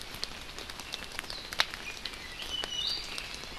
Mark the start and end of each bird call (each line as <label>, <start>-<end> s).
Iiwi (Drepanis coccinea), 1.8-3.2 s